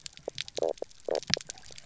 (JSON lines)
{"label": "biophony, knock croak", "recorder": "SoundTrap 300"}